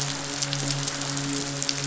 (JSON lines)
{"label": "biophony, midshipman", "recorder": "SoundTrap 500"}